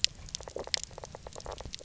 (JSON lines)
{"label": "biophony, knock croak", "recorder": "SoundTrap 300"}